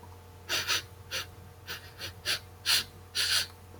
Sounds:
Sniff